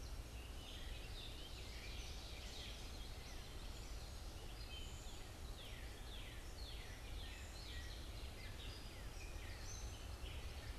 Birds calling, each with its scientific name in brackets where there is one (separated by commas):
Northern Cardinal (Cardinalis cardinalis), Ovenbird (Seiurus aurocapilla), Gray Catbird (Dumetella carolinensis), Common Yellowthroat (Geothlypis trichas)